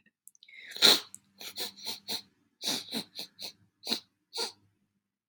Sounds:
Sniff